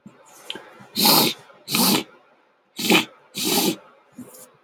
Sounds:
Sniff